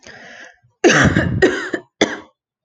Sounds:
Cough